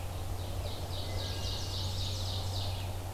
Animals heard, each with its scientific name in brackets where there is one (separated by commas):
Wood Thrush (Hylocichla mustelina), Red-eyed Vireo (Vireo olivaceus), Ovenbird (Seiurus aurocapilla)